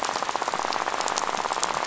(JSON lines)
{"label": "biophony, rattle", "recorder": "SoundTrap 500"}